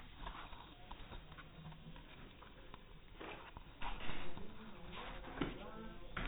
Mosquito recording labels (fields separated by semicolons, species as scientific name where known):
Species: no mosquito; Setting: cup